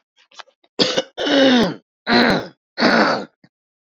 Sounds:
Throat clearing